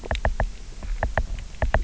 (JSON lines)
{"label": "biophony, knock", "recorder": "SoundTrap 300"}